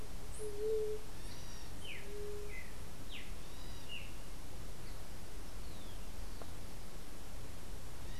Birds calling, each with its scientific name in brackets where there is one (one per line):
White-tipped Dove (Leptotila verreauxi)
Streaked Saltator (Saltator striatipectus)